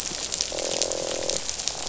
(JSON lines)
{"label": "biophony, croak", "recorder": "SoundTrap 500"}